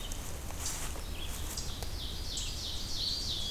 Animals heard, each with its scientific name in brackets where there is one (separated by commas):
Ovenbird (Seiurus aurocapilla), Eastern Chipmunk (Tamias striatus), Red-eyed Vireo (Vireo olivaceus), Eastern Wood-Pewee (Contopus virens)